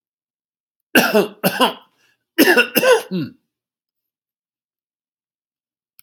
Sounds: Cough